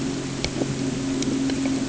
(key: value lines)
label: anthrophony, boat engine
recorder: HydroMoth